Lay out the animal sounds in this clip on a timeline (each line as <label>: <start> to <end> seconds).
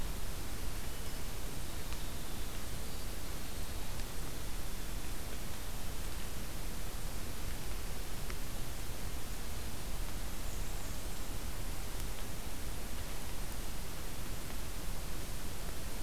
Winter Wren (Troglodytes hiemalis): 0.3 to 3.0 seconds
White-throated Sparrow (Zonotrichia albicollis): 2.7 to 5.3 seconds
Black-and-white Warbler (Mniotilta varia): 10.4 to 11.3 seconds